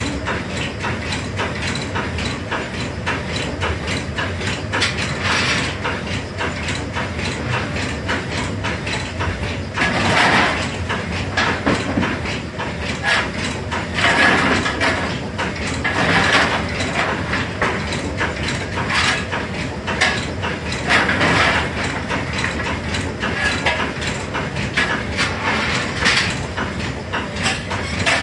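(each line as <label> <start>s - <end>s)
Steam engine producing rhythmic and irregular intermediate sounds. 0.1s - 28.2s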